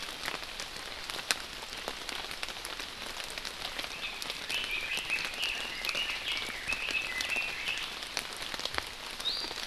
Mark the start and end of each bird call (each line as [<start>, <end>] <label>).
[4.50, 7.90] Red-billed Leiothrix (Leiothrix lutea)
[9.20, 9.60] Iiwi (Drepanis coccinea)